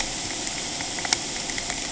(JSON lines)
{"label": "ambient", "recorder": "HydroMoth"}